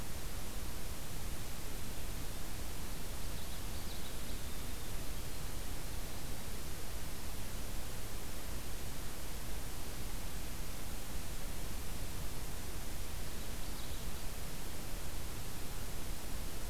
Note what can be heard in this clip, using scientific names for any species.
Geothlypis trichas